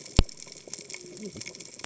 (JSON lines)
{"label": "biophony, cascading saw", "recorder": "HydroMoth"}